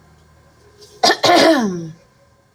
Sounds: Throat clearing